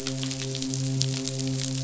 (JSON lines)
{"label": "biophony, midshipman", "recorder": "SoundTrap 500"}